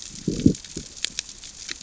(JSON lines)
{"label": "biophony, growl", "recorder": "SoundTrap 600 or HydroMoth"}